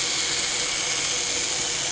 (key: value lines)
label: anthrophony, boat engine
recorder: HydroMoth